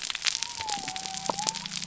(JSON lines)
{"label": "biophony", "recorder": "SoundTrap 300"}